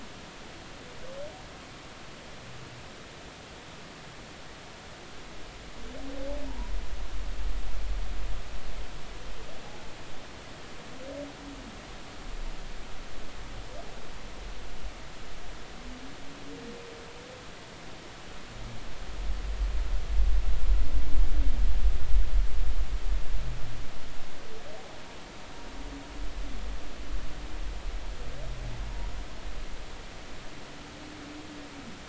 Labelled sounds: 6.5	6.7	humpback whale, 0.86 to 1.1 kHz

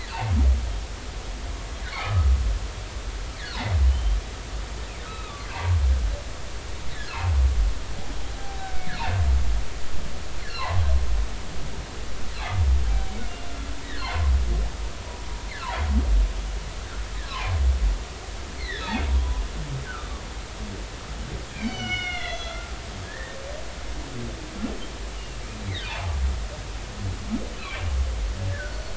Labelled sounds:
1.9	2.3	humpback whale, 1.1 to 2.5 kHz
3.3	4.2	humpback whale, 1.3 to 3.2 kHz
5.1	5.5	humpback whale, 1.1 to 4.0 kHz
8.3	8.9	humpback whale, 0.80 to 1.6 kHz
10.6	10.8	humpback whale, 0.80 to 1.2 kHz
17.3	17.5	humpback whale, 0.80 to 1.2 kHz
18.6	19.4	humpback whale, 0.93 to 4.4 kHz
19.8	20.1	humpback whale, 1.2 to 1.7 kHz
21.5	22.7	humpback whale, 1.3 to 6.2 kHz
23.0	23.4	humpback whale, 1.6 to 2.0 kHz
25.1	25.4	humpback whale, 2.7 to 3.0 kHz
25.9	26.2	humpback whale, 0.80 to 1.1 kHz
28.5	28.9	humpback whale, 1.3 to 1.9 kHz

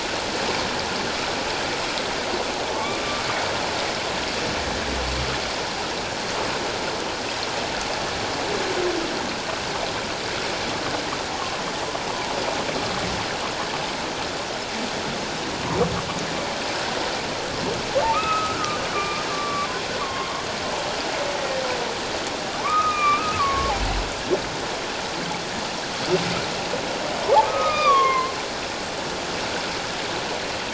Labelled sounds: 2.7	3.0	humpback whale, 1.0 to 1.2 kHz
18.1	20.4	humpback whale, 0.97 to 2.7 kHz
22.6	23.7	humpback whale, 1.0 to 2.6 kHz
27.2	28.3	humpback whale, 0.78 to 6.2 kHz

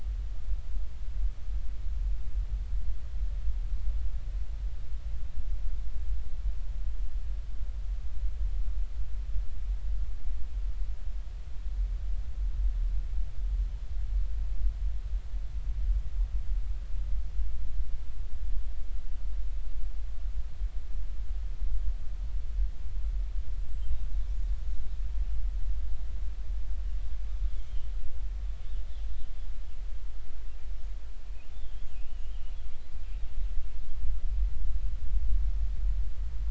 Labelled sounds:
23.6	23.9	killer whale, northern resident, 7.5 to 7.7 kHz
27.6	27.9	killer whale, northern resident, 2.8 to 3.3 kHz
31.9	32.3	killer whale, northern resident, 2.4 to 3.1 kHz

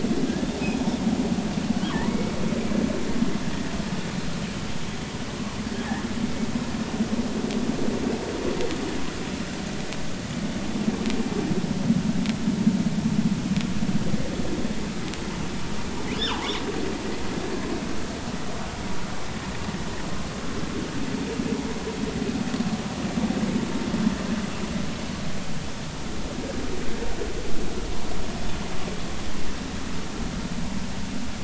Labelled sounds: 1.9	2.4	killer whale, northern resident, G clan, call N23i, 0.86 to 2.4 kHz

